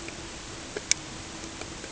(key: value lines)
label: ambient
recorder: HydroMoth